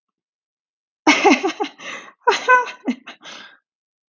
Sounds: Laughter